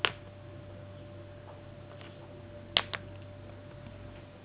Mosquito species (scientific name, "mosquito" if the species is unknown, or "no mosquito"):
Anopheles gambiae s.s.